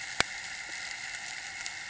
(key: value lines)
label: anthrophony, boat engine
recorder: HydroMoth